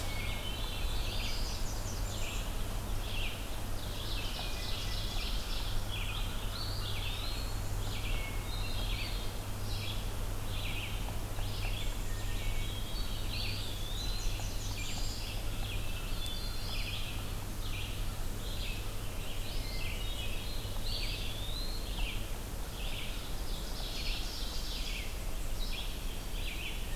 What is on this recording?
Red-eyed Vireo, Hermit Thrush, Black-throated Blue Warbler, Blackburnian Warbler, Ovenbird, Eastern Wood-Pewee